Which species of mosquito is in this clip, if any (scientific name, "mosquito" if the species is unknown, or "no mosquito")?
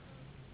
Anopheles gambiae s.s.